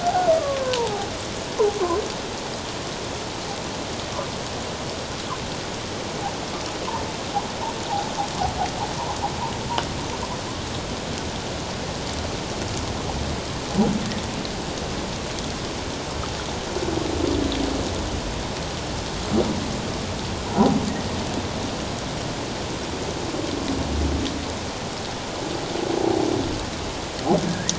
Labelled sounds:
0.0	1.1	humpback whale, 0.78 to 1.6 kHz
20.4	20.7	humpback whale, 0.91 to 1.0 kHz
27.5	27.7	humpback whale, 1.6 to 2.0 kHz

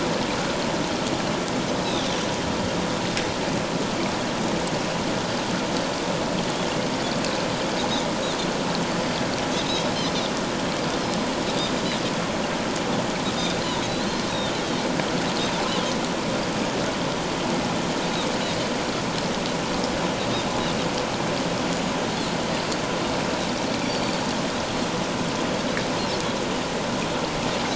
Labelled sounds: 13.8	14.3	Pacific white-sided dolphin, 3.8 to 4.3 kHz
21.7	21.9	Pacific white-sided dolphin, 6.6 to 7.1 kHz
23.8	24.1	Pacific white-sided dolphin, 4.4 to 4.7 kHz

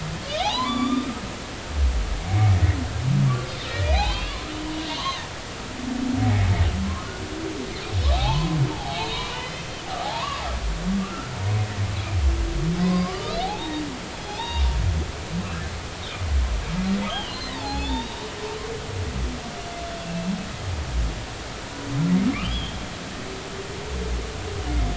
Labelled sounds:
0.0	1.1	humpback whale, 0.80 to 7.1 kHz
2.3	2.6	humpback whale, 2.1 to 2.4 kHz
3.7	5.2	humpback whale, 0.80 to 6.5 kHz
8.1	9.8	humpback whale, 0.80 to 5.8 kHz
11.0	11.4	humpback whale, 0.80 to 1.5 kHz
12.8	14.7	humpback whale, 0.80 to 3.9 kHz
17.1	18.1	humpback whale, 0.80 to 4.8 kHz
21.0	21.3	humpback whale, 2.6 to 2.7 kHz
22.4	22.8	humpback whale, 2.7 to 3.6 kHz

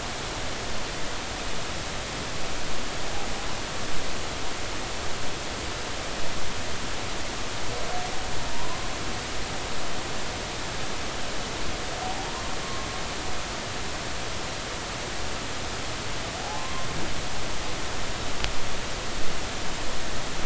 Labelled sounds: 12.6	12.9	humpback whale, 1.0 to 1.1 kHz
16.5	16.9	humpback whale, 0.99 to 1.1 kHz

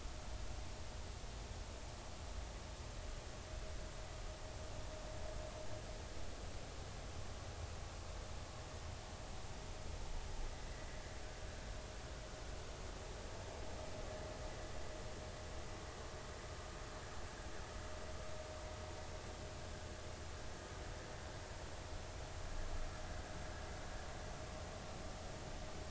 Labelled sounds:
10.5	10.9	vessel noise, 1.9 to 2.0 kHz

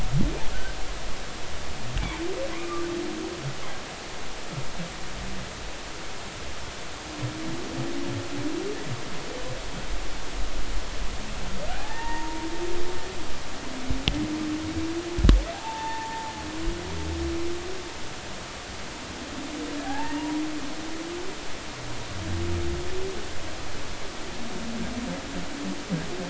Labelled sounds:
0.5	0.8	humpback whale, 1.3 to 1.7 kHz
2.5	2.9	humpback whale, 0.96 to 2.5 kHz
11.7	12.5	humpback whale, 0.80 to 1.9 kHz
15.5	17.1	humpback whale, 0.80 to 1.9 kHz
19.8	20.4	humpback whale, 0.80 to 2.9 kHz
20.8	21.0	humpback whale, 1.5 to 1.8 kHz

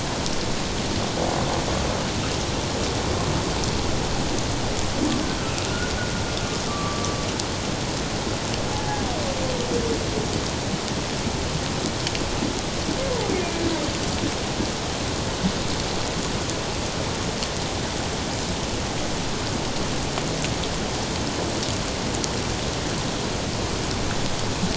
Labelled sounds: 5.7	5.9	humpback whale, 1.3 to 1.5 kHz
6.7	7.1	humpback whale, 1.1 to 1.2 kHz
8.7	9.0	humpback whale, 0.78 to 0.88 kHz

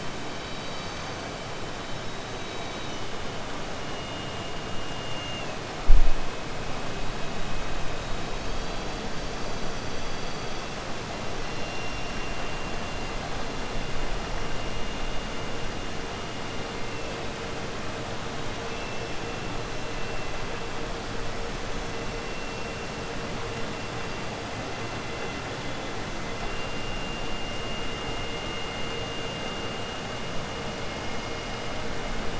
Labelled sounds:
4.9	5.5	killer whale, southern resident, 2.1 to 3.6 kHz

